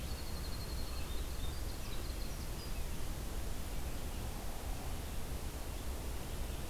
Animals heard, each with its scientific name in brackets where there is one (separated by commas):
Red-eyed Vireo (Vireo olivaceus), Winter Wren (Troglodytes hiemalis)